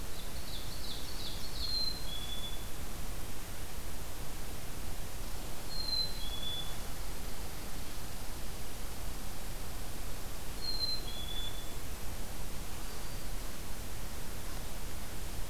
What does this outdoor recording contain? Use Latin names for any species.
Seiurus aurocapilla, Poecile atricapillus